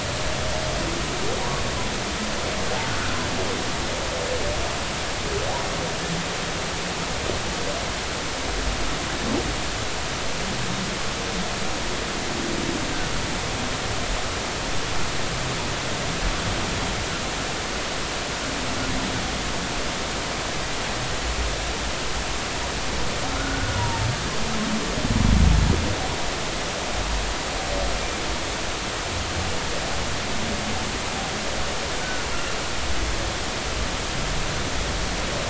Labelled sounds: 23.4	24.1	humpback whale, 0.86 to 1.5 kHz
32.0	32.3	humpback whale, 1.4 to 1.6 kHz

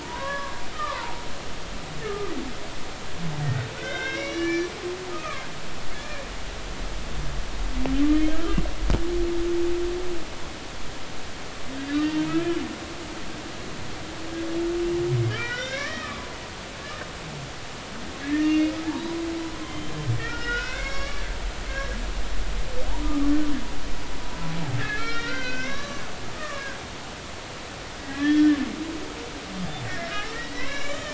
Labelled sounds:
0.0	1.2	humpback whale, 0.80 to 1.8 kHz
2.0	2.3	humpback whale, 1.1 to 1.3 kHz
3.7	4.7	humpback whale, 1.4 to 5.9 kHz
5.1	5.5	humpback whale, 1.0 to 2.6 kHz
11.9	12.6	humpback whale, 1.6 to 3.1 kHz
15.3	16.2	humpback whale, 1.1 to 4.1 kHz
18.2	18.7	humpback whale, 1.6 to 4.7 kHz
19.6	19.9	humpback whale, 3.1 to 3.2 kHz
20.2	22.0	humpback whale, 1.1 to 7.2 kHz
22.9	23.3	humpback whale, 0.80 to 1.3 kHz
24.8	26.0	humpback whale, 1.0 to 5.7 kHz
26.4	26.8	humpback whale, 1.1 to 1.9 kHz
28.1	28.6	humpback whale, 1.6 to 3.4 kHz
30.3	31.1	humpback whale, 0.99 to 7.1 kHz

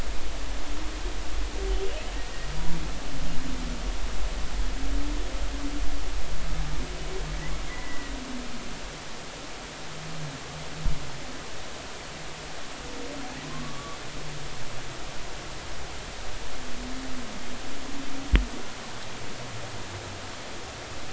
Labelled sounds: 7.7	8.1	humpback whale, 1.9 to 2.0 kHz
13.5	14.0	humpback whale, 0.99 to 1.2 kHz

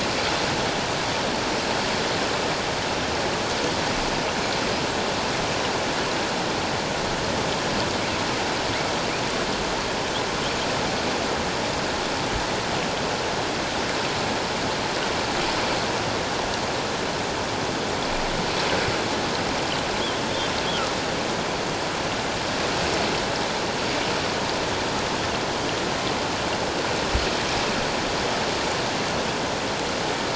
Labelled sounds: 20.3	20.5	humpback whale, 3.4 to 3.7 kHz

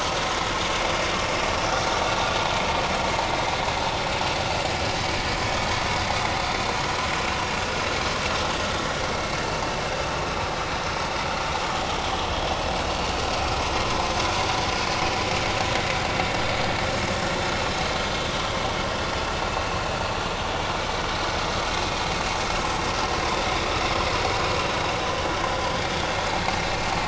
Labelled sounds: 10.2	10.5	vessel noise, 2.5 to 2.7 kHz
21.8	22.1	vessel noise, 2.4 to 2.6 kHz
23.8	24.0	vessel noise, 5.2 to 5.4 kHz

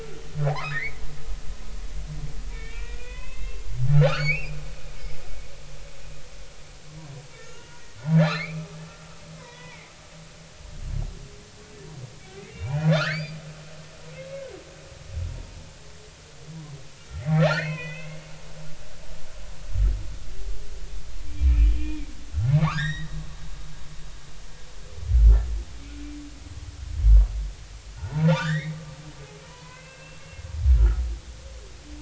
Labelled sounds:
0.5	1.1	humpback whale, 0.80 to 2.5 kHz
2.5	4.6	humpback whale, 0.96 to 6.8 kHz
7.4	8.8	humpback whale, 1.1 to 6.0 kHz
9.4	9.9	humpback whale, 0.83 to 2.5 kHz
12.3	13.4	humpback whale, 1.1 to 4.9 kHz
17.2	18.2	humpback whale, 0.80 to 4.6 kHz
21.5	22.1	humpback whale, 2.2 to 3.1 kHz
22.5	23.1	humpback whale, 0.80 to 5.8 kHz
28.0	28.8	humpback whale, 1.3 to 3.9 kHz
29.4	30.4	humpback whale, 0.93 to 2.8 kHz
30.8	31.0	humpback whale, 1.2 to 1.5 kHz

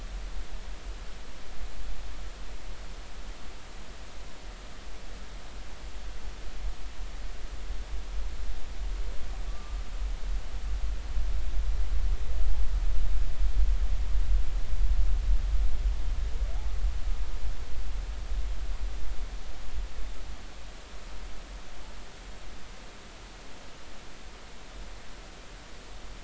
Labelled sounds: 9.5	9.8	humpback whale, 1.1 to 1.2 kHz

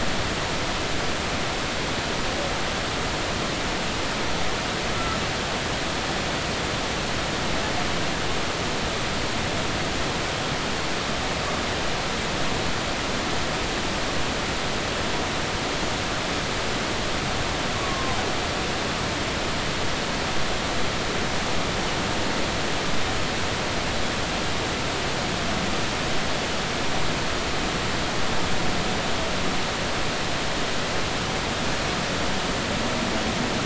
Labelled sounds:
4.9	5.2	Pacific white-sided dolphin, 1.2 to 1.4 kHz
17.8	18.2	Pacific white-sided dolphin, 0.99 to 1.2 kHz

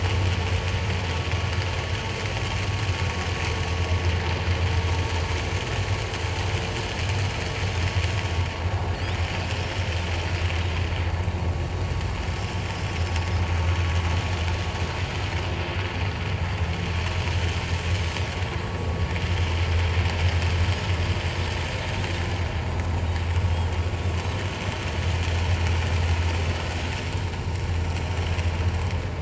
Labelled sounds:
11.0	11.3	Pacific white-sided dolphin, 4.4 to 4.6 kHz

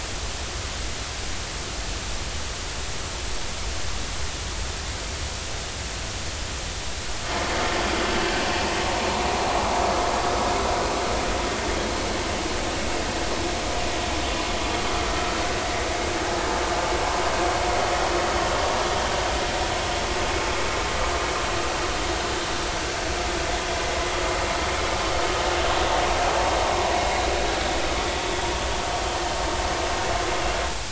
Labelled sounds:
15.1	15.3	vessel noise, 1.3 to 1.4 kHz

